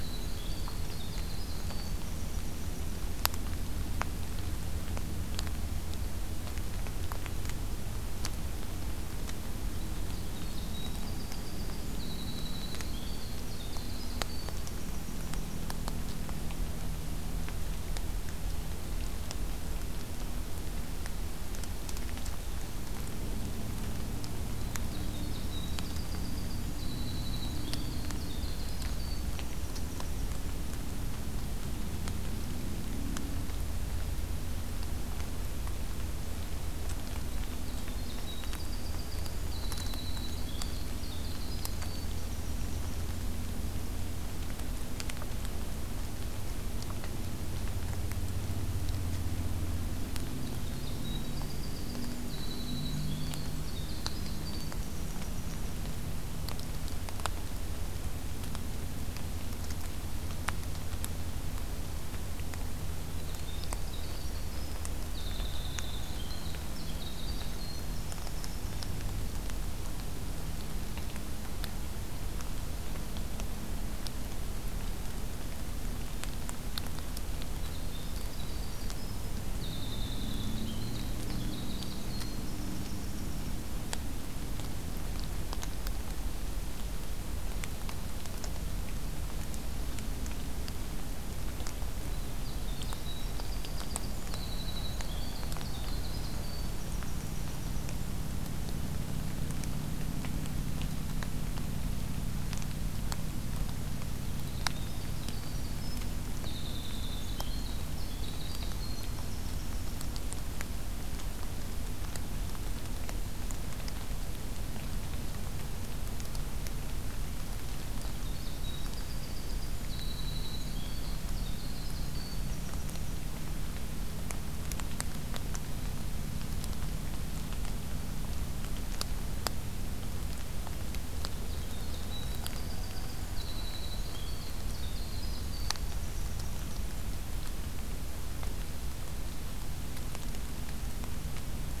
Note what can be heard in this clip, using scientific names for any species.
Troglodytes hiemalis